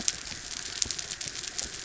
{"label": "anthrophony, mechanical", "recorder": "SoundTrap 300"}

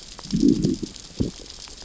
{"label": "biophony, growl", "recorder": "SoundTrap 600 or HydroMoth"}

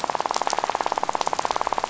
{"label": "biophony, rattle", "recorder": "SoundTrap 500"}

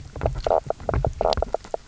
{"label": "biophony, knock croak", "recorder": "SoundTrap 300"}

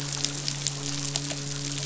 {"label": "biophony, midshipman", "recorder": "SoundTrap 500"}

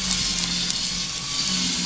{"label": "anthrophony, boat engine", "recorder": "SoundTrap 500"}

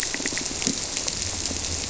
{"label": "biophony", "recorder": "SoundTrap 300"}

